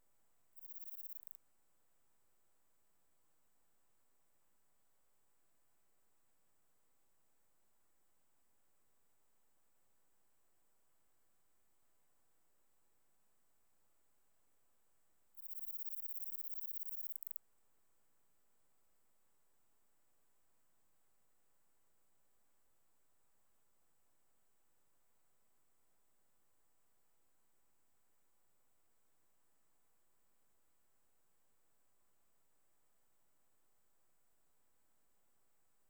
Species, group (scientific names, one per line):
Platycleis iberica
Orthoptera